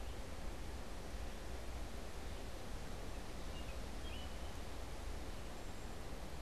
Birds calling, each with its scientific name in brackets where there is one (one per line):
American Robin (Turdus migratorius)